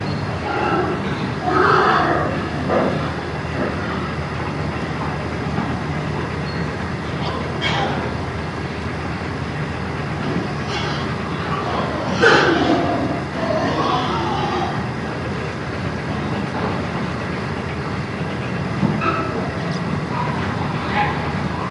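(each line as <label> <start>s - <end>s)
A pig squeals loudly. 0.0s - 3.9s
A metallic machine is working repeatedly. 4.1s - 11.8s
A pig grunts loudly. 11.8s - 15.5s
A metallic machine is operating. 15.6s - 19.2s
A pig grunts in the distance. 19.2s - 21.7s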